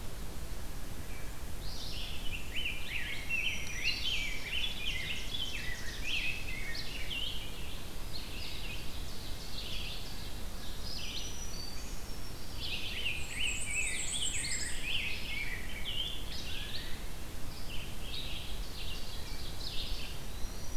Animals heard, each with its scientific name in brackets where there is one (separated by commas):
Rose-breasted Grosbeak (Pheucticus ludovicianus), Red-eyed Vireo (Vireo olivaceus), Black-throated Green Warbler (Setophaga virens), Ovenbird (Seiurus aurocapilla), Black-and-white Warbler (Mniotilta varia)